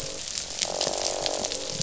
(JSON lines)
{"label": "biophony", "recorder": "SoundTrap 500"}
{"label": "biophony, croak", "recorder": "SoundTrap 500"}